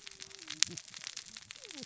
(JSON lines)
{"label": "biophony, cascading saw", "recorder": "SoundTrap 600 or HydroMoth"}